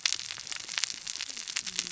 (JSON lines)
{"label": "biophony, cascading saw", "recorder": "SoundTrap 600 or HydroMoth"}